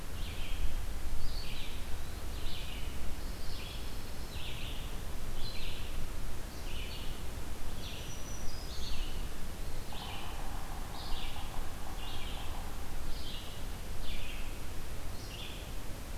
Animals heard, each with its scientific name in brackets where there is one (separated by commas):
Black-throated Green Warbler (Setophaga virens), Red-eyed Vireo (Vireo olivaceus), Pine Warbler (Setophaga pinus)